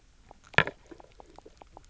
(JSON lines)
{"label": "biophony, knock croak", "recorder": "SoundTrap 300"}